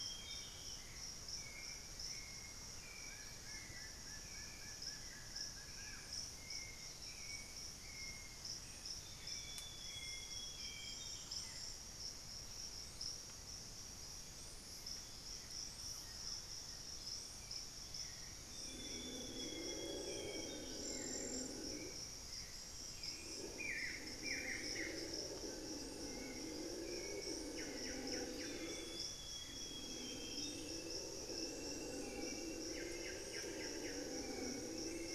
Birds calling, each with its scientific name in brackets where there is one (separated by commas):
Plain-winged Antshrike (Thamnophilus schistaceus), Buff-throated Woodcreeper (Xiphorhynchus guttatus), Amazonian Grosbeak (Cyanoloxia rothschildii), Solitary Black Cacique (Cacicus solitarius), Piratic Flycatcher (Legatus leucophaius), Hauxwell's Thrush (Turdus hauxwelli), Thrush-like Wren (Campylorhynchus turdinus)